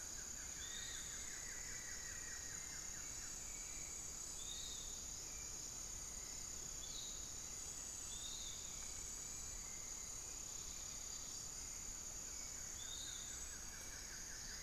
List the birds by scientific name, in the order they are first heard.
Xiphorhynchus guttatus, Turdus hauxwelli, Formicarius analis, Legatus leucophaius, unidentified bird